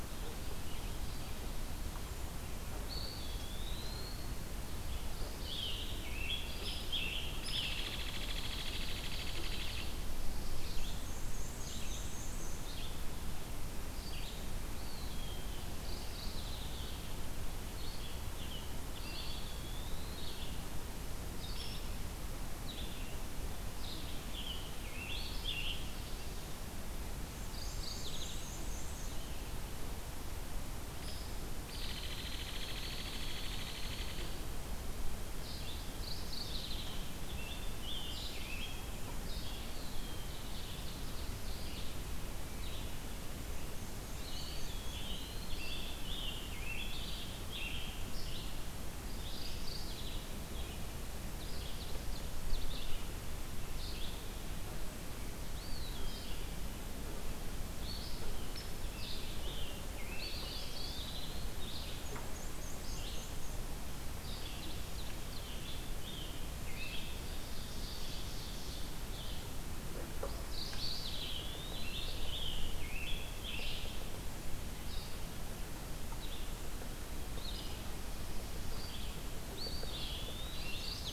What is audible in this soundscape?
Red-eyed Vireo, Eastern Wood-Pewee, Mourning Warbler, Scarlet Tanager, Hairy Woodpecker, Black-and-white Warbler, Ovenbird